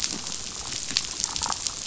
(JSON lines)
{"label": "biophony, damselfish", "recorder": "SoundTrap 500"}